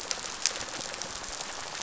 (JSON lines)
{"label": "biophony, rattle response", "recorder": "SoundTrap 500"}